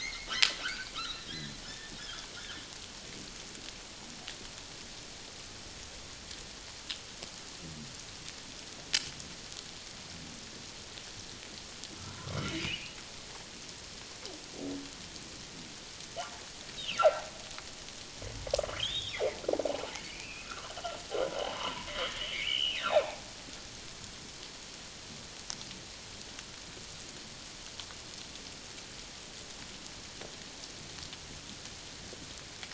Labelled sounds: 0.0	2.2	humpback whale, 1.2 to 4.4 kHz
12.0	13.0	humpback whale, 0.91 to 3.0 kHz
16.8	17.3	humpback whale, 0.78 to 3.3 kHz
18.7	19.2	humpback whale, 2.8 to 3.9 kHz
20.0	20.7	humpback whale, 0.97 to 2.9 kHz
21.4	23.2	humpback whale, 0.78 to 3.2 kHz

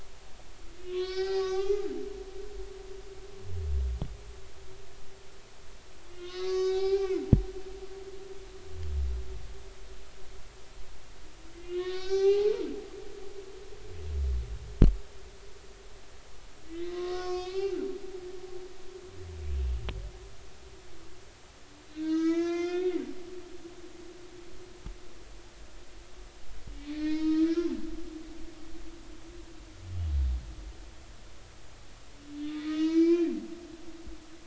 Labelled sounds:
0.9	1.9	humpback whale, 0.80 to 5.4 kHz
2.5	2.8	humpback whale, 0.80 to 0.86 kHz
6.1	7.2	humpback whale, 0.80 to 6.2 kHz
7.5	7.8	humpback whale, 6.3 to 6.5 kHz
11.5	12.7	humpback whale, 0.80 to 6.0 kHz
16.7	17.8	humpback whale, 1.0 to 4.9 kHz
21.9	23.0	humpback whale, 0.93 to 6.7 kHz
26.7	27.5	humpback whale, 0.90 to 5.4 kHz
32.4	33.4	humpback whale, 1.2 to 5.2 kHz

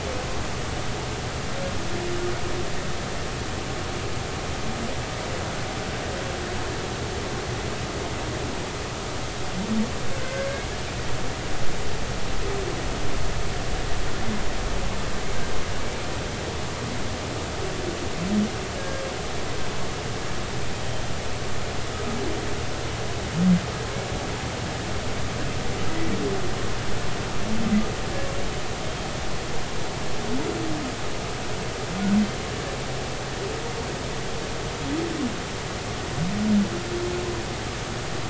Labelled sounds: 10.2	10.5	humpback whale, 1.5 to 1.7 kHz
15.8	16.1	humpback whale, 2.2 to 2.4 kHz
18.8	19.0	humpback whale, 1.6 to 1.7 kHz

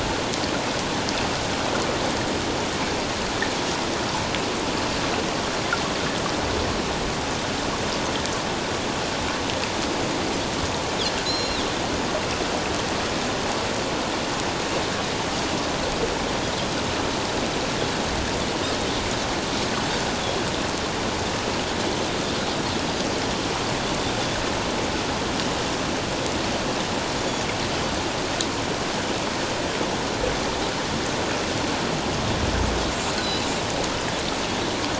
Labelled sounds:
11.2	11.6	Pacific white-sided dolphin, 3.6 to 5.6 kHz
27.2	27.4	Pacific white-sided dolphin, 6.8 to 6.9 kHz
33.2	33.5	Pacific white-sided dolphin, 3.9 to 4.7 kHz

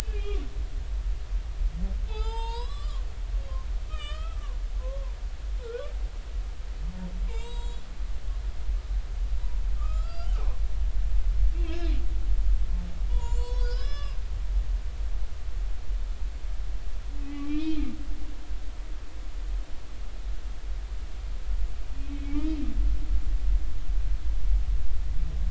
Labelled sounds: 0.0	0.4	humpback whale, 2.3 to 2.7 kHz
2.1	3.0	humpback whale, 0.80 to 7.9 kHz
3.9	5.2	humpback whale, 0.86 to 5.1 kHz
7.3	7.9	humpback whale, 0.86 to 7.7 kHz
9.8	10.3	humpback whale, 1.1 to 7.5 kHz
11.5	11.9	humpback whale, 2.5 to 2.8 kHz
13.1	14.2	humpback whale, 0.90 to 8.0 kHz
17.2	17.9	humpback whale, 1.1 to 3.2 kHz
22.1	22.6	humpback whale, 2.2 to 2.6 kHz

